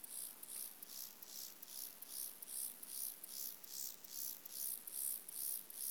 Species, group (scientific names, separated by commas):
Chorthippus mollis, Orthoptera